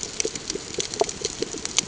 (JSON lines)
{"label": "ambient", "recorder": "HydroMoth"}